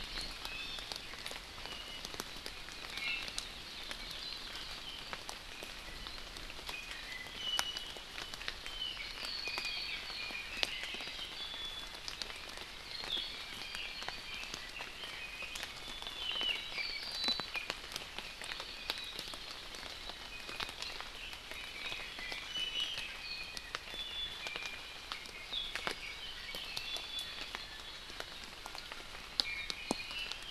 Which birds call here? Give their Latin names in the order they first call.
Drepanis coccinea, Loxops coccineus, Himatione sanguinea, Leiothrix lutea